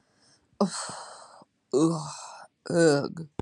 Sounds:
Sigh